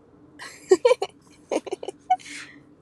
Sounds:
Laughter